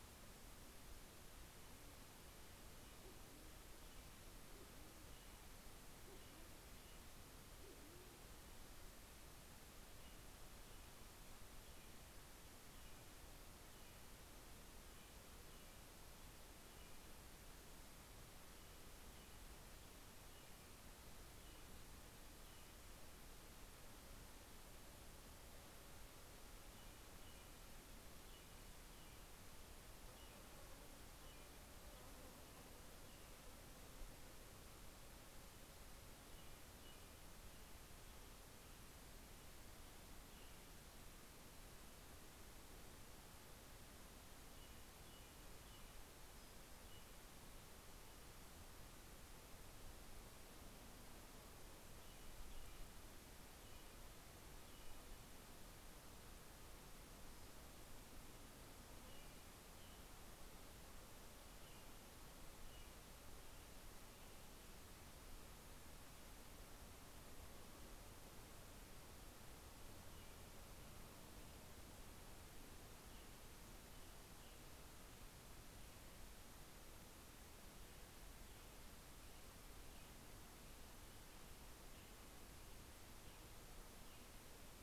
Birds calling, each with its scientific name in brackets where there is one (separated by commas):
Band-tailed Pigeon (Patagioenas fasciata), American Robin (Turdus migratorius)